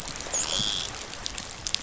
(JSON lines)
{"label": "biophony, dolphin", "recorder": "SoundTrap 500"}